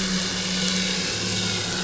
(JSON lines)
{"label": "anthrophony, boat engine", "recorder": "SoundTrap 500"}